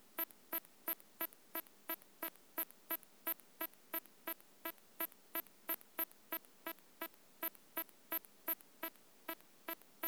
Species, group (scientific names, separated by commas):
Hexacentrus unicolor, Orthoptera